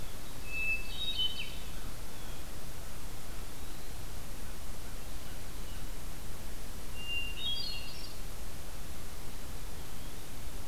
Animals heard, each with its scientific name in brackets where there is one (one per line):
Ovenbird (Seiurus aurocapilla)
Eastern Wood-Pewee (Contopus virens)
Hermit Thrush (Catharus guttatus)
American Crow (Corvus brachyrhynchos)